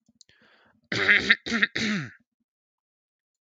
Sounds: Throat clearing